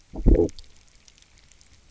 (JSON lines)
{"label": "biophony, low growl", "recorder": "SoundTrap 300"}